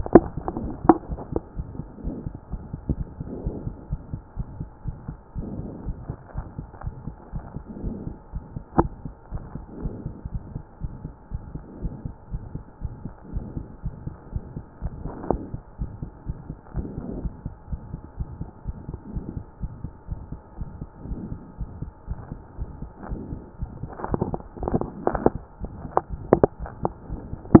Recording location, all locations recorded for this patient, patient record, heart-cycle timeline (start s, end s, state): aortic valve (AV)
aortic valve (AV)+pulmonary valve (PV)+tricuspid valve (TV)+mitral valve (MV)
#Age: Child
#Sex: Female
#Height: 114.0 cm
#Weight: 17.7 kg
#Pregnancy status: False
#Murmur: Present
#Murmur locations: aortic valve (AV)+pulmonary valve (PV)+tricuspid valve (TV)
#Most audible location: tricuspid valve (TV)
#Systolic murmur timing: Early-systolic
#Systolic murmur shape: Decrescendo
#Systolic murmur grading: I/VI
#Systolic murmur pitch: Low
#Systolic murmur quality: Blowing
#Diastolic murmur timing: nan
#Diastolic murmur shape: nan
#Diastolic murmur grading: nan
#Diastolic murmur pitch: nan
#Diastolic murmur quality: nan
#Outcome: Abnormal
#Campaign: 2014 screening campaign
0.00	5.84	unannotated
5.84	5.96	S1
5.96	6.08	systole
6.08	6.16	S2
6.16	6.36	diastole
6.36	6.46	S1
6.46	6.58	systole
6.58	6.68	S2
6.68	6.84	diastole
6.84	6.94	S1
6.94	7.06	systole
7.06	7.16	S2
7.16	7.34	diastole
7.34	7.44	S1
7.44	7.54	systole
7.54	7.62	S2
7.62	7.82	diastole
7.82	7.96	S1
7.96	8.06	systole
8.06	8.16	S2
8.16	8.34	diastole
8.34	8.44	S1
8.44	8.54	systole
8.54	8.62	S2
8.62	8.76	diastole
8.76	8.90	S1
8.90	9.04	systole
9.04	9.14	S2
9.14	9.32	diastole
9.32	9.42	S1
9.42	9.54	systole
9.54	9.64	S2
9.64	9.82	diastole
9.82	9.94	S1
9.94	10.04	systole
10.04	10.14	S2
10.14	10.32	diastole
10.32	10.42	S1
10.42	10.54	systole
10.54	10.62	S2
10.62	10.82	diastole
10.82	10.92	S1
10.92	11.04	systole
11.04	11.12	S2
11.12	11.32	diastole
11.32	11.42	S1
11.42	11.54	systole
11.54	11.62	S2
11.62	11.82	diastole
11.82	11.94	S1
11.94	12.04	systole
12.04	12.14	S2
12.14	12.32	diastole
12.32	12.42	S1
12.42	12.54	systole
12.54	12.64	S2
12.64	12.82	diastole
12.82	12.94	S1
12.94	13.04	systole
13.04	13.12	S2
13.12	13.32	diastole
13.32	13.44	S1
13.44	13.56	systole
13.56	13.66	S2
13.66	13.84	diastole
13.84	13.94	S1
13.94	14.06	systole
14.06	14.14	S2
14.14	14.32	diastole
14.32	14.44	S1
14.44	14.54	systole
14.54	14.64	S2
14.64	14.77	diastole
14.77	27.60	unannotated